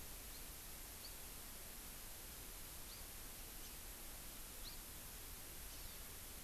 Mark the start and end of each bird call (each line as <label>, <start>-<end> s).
House Finch (Haemorhous mexicanus), 0.2-0.4 s
House Finch (Haemorhous mexicanus), 1.0-1.1 s
House Finch (Haemorhous mexicanus), 2.8-3.0 s
House Finch (Haemorhous mexicanus), 3.5-3.7 s
House Finch (Haemorhous mexicanus), 4.6-4.8 s
Hawaii Amakihi (Chlorodrepanis virens), 5.6-6.0 s